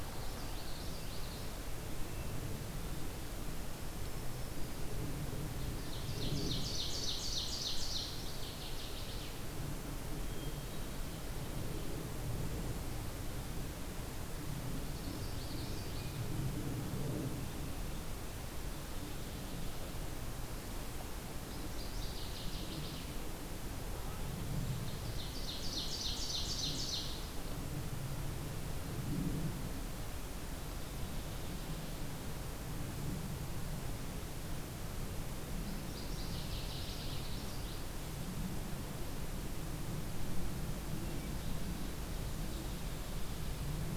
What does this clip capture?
Common Yellowthroat, Black-throated Green Warbler, Ovenbird, Northern Waterthrush, Hermit Thrush